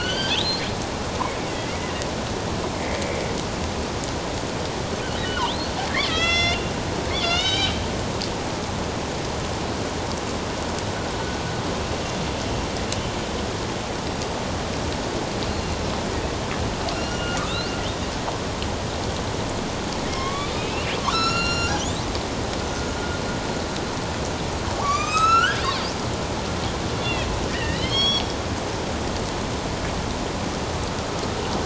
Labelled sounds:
1.5	1.8	killer whale, northern resident, A clan, AB subclan, 1.9 to 2.4 kHz
5.4	6.7	killer whale, northern resident, A clan, AB subclan, 1.2 to 6.3 kHz
7.1	7.8	killer whale, northern resident, A clan, AB subclan, 1.3 to 5.6 kHz
16.9	17.6	killer whale, northern resident, A clan, AB subclan, 1.1 to 7.2 kHz
20.1	22.0	killer whale, northern resident, A clan, AB subclan, 1.0 to 7.0 kHz
24.8	25.6	killer whale, northern resident, A clan, AB subclan, 1.1 to 8.0 kHz
27.0	28.2	killer whale, northern resident, A clan, AB subclan, 1.1 to 5.7 kHz

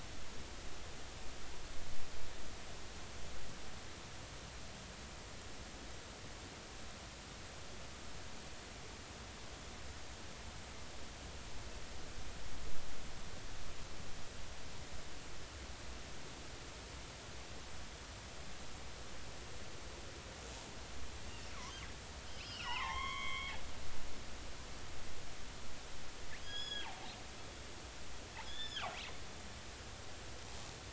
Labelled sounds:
22.3	23.5	killer whale, northern resident, G clan, call N23i, 0.80 to 6.7 kHz
26.4	26.9	killer whale, northern resident, G clan, call N28, 1.3 to 6.8 kHz
28.4	29.0	killer whale, northern resident, G clan, call N28, 0.80 to 3.6 kHz

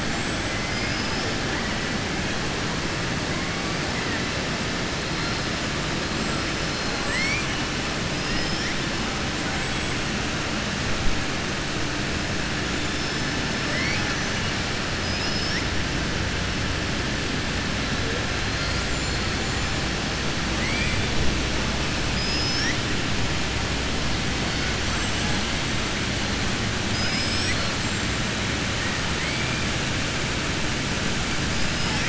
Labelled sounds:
0.0	1.3	killer whale, southern resident, 4.4 to 7.9 kHz
6.9	7.5	killer whale, southern resident, 0.80 to 8.0 kHz
8.1	8.7	killer whale, southern resident, 4.2 to 5.7 kHz
14.9	15.7	killer whale, southern resident, 4.4 to 5.8 kHz
20.5	21.0	killer whale, southern resident, 1.1 to 3.4 kHz
22.0	22.8	killer whale, southern resident, 4.9 to 6.5 kHz
26.8	27.7	killer whale, southern resident, 1.4 to 7.8 kHz
31.7	32.0	killer whale, southern resident, 5.0 to 5.7 kHz

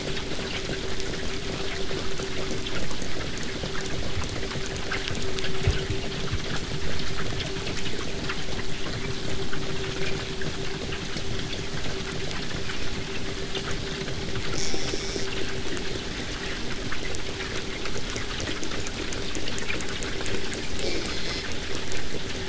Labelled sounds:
6.8	11.8	vessel noise, 0 to 8.0 kHz
14.6	15.3	killer whale, southern resident, buzz, 2.0 to 8.0 kHz
20.8	21.5	killer whale, southern resident, J pod, call S04, 0.23 to 7.2 kHz

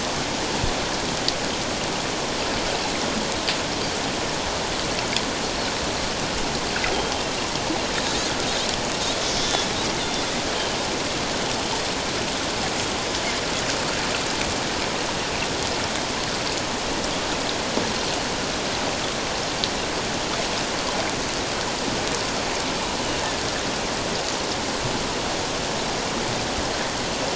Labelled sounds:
9.4	9.7	Pacific white-sided dolphin, 3.3 to 3.6 kHz

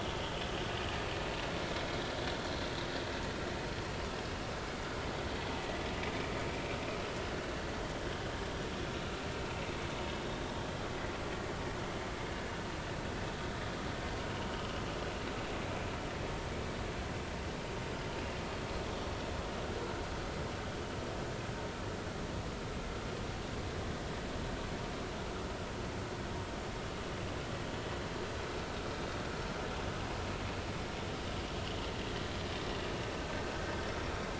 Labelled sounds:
14.5	14.8	vessel noise, 2.8 to 3.1 kHz

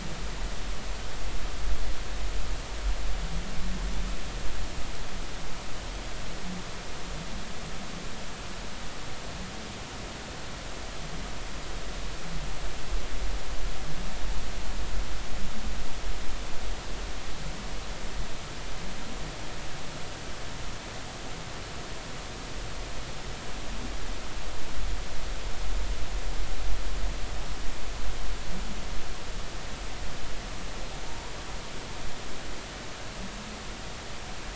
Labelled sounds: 31.0	31.3	humpback whale, 0.86 to 1.0 kHz

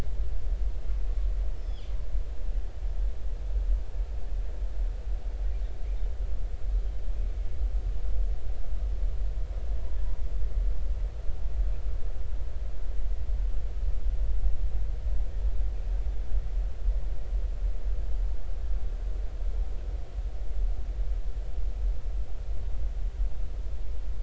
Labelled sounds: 1.5	1.9	killer whale, northern resident, 2.9 to 5.4 kHz

